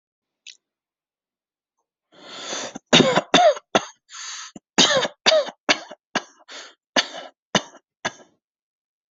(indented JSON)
{
  "expert_labels": [
    {
      "quality": "good",
      "cough_type": "dry",
      "dyspnea": false,
      "wheezing": false,
      "stridor": false,
      "choking": false,
      "congestion": false,
      "nothing": true,
      "diagnosis": "COVID-19",
      "severity": "mild"
    }
  ],
  "age": 24,
  "gender": "male",
  "respiratory_condition": false,
  "fever_muscle_pain": false,
  "status": "COVID-19"
}